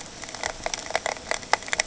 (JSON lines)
{"label": "ambient", "recorder": "HydroMoth"}